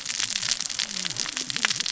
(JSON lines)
{"label": "biophony, cascading saw", "recorder": "SoundTrap 600 or HydroMoth"}